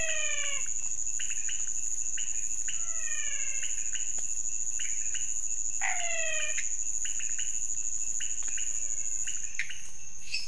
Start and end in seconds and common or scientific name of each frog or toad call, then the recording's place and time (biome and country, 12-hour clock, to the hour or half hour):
0.0	0.9	menwig frog
0.0	9.4	pointedbelly frog
2.7	4.2	menwig frog
5.8	6.8	menwig frog
8.4	9.4	menwig frog
Cerrado, Brazil, ~1am